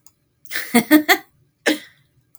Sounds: Laughter